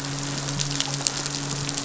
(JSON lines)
{"label": "biophony, midshipman", "recorder": "SoundTrap 500"}